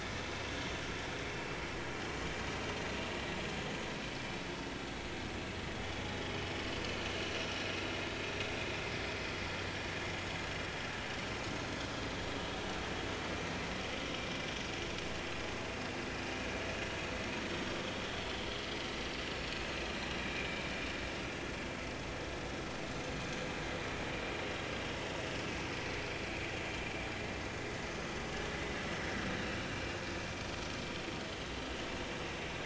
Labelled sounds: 11.6	11.8	vessel noise, 6.4 to 6.6 kHz
20.2	20.7	vessel noise, 2.2 to 2.5 kHz

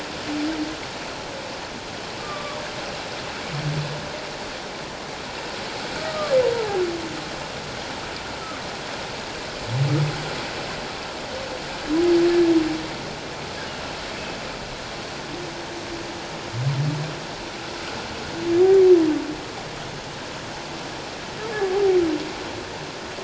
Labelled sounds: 2.2	2.6	humpback whale, 1.1 to 1.3 kHz
6.0	6.3	humpback whale, 1.1 to 1.3 kHz

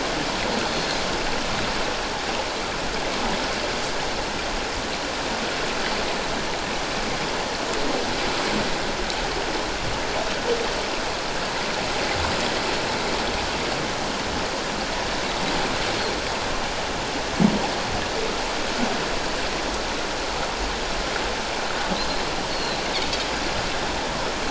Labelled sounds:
0.7	1.0	Pacific white-sided dolphin, 4.0 to 4.4 kHz
22.5	22.8	Pacific white-sided dolphin, 3.9 to 4.5 kHz

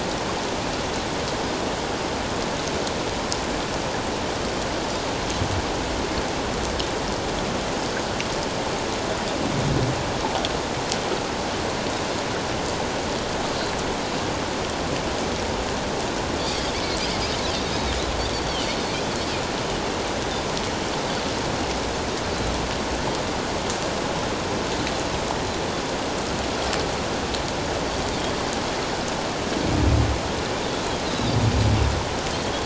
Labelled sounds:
16.5	16.8	Pacific white-sided dolphin, 3.2 to 3.4 kHz
17.6	18.0	Pacific white-sided dolphin, 3.5 to 3.9 kHz
18.6	19.0	Pacific white-sided dolphin, 4.3 to 4.5 kHz

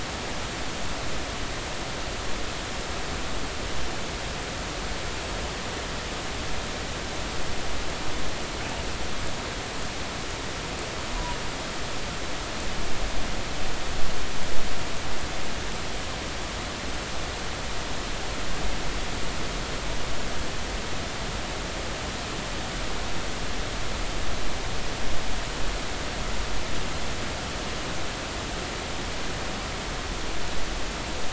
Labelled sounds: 11.1	11.4	killer whale, northern resident, 0.93 to 1.1 kHz

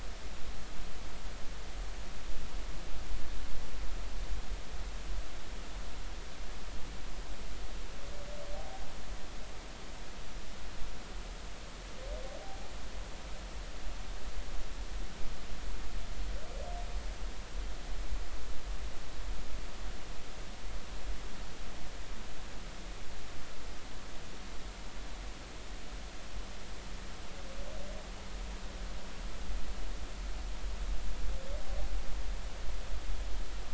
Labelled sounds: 8.5	8.8	humpback whale, 0.80 to 0.83 kHz
12.4	12.7	humpback whale, 0.80 to 0.86 kHz

